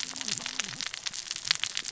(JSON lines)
{"label": "biophony, cascading saw", "recorder": "SoundTrap 600 or HydroMoth"}